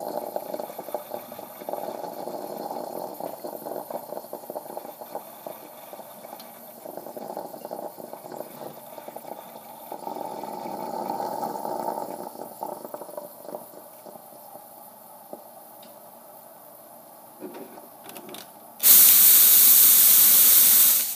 Is steam being released?
yes